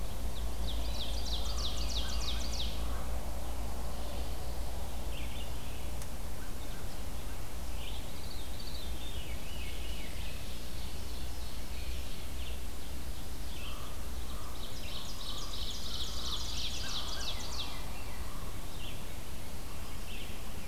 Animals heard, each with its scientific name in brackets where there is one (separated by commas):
Veery (Catharus fuscescens), Common Raven (Corvus corax), Ovenbird (Seiurus aurocapilla), Red-eyed Vireo (Vireo olivaceus), American Crow (Corvus brachyrhynchos)